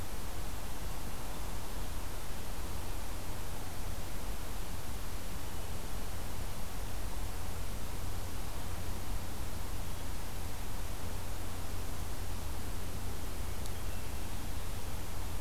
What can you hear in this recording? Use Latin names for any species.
Catharus guttatus